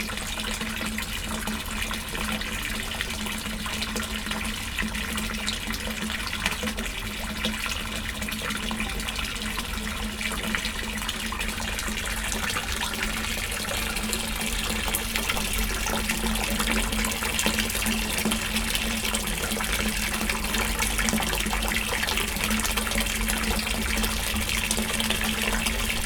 Does a person sigh?
no